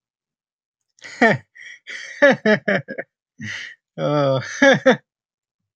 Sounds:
Laughter